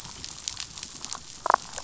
{"label": "biophony, damselfish", "recorder": "SoundTrap 500"}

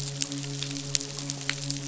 {"label": "biophony, midshipman", "recorder": "SoundTrap 500"}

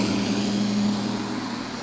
{"label": "anthrophony, boat engine", "recorder": "SoundTrap 500"}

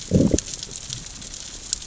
{"label": "biophony, growl", "recorder": "SoundTrap 600 or HydroMoth"}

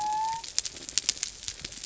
{"label": "biophony", "recorder": "SoundTrap 300"}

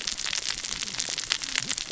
{"label": "biophony, cascading saw", "recorder": "SoundTrap 600 or HydroMoth"}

